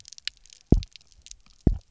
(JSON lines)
{"label": "biophony, double pulse", "recorder": "SoundTrap 300"}